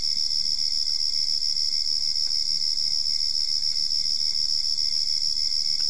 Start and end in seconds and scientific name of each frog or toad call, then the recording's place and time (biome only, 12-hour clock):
none
Cerrado, 3:45am